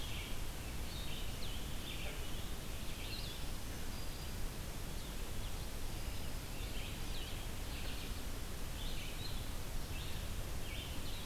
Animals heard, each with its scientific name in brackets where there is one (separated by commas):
Blue-headed Vireo (Vireo solitarius), Red-eyed Vireo (Vireo olivaceus), Black-throated Green Warbler (Setophaga virens)